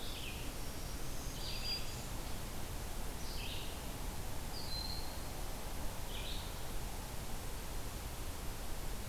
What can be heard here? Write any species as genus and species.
Vireo olivaceus, Setophaga virens, Buteo platypterus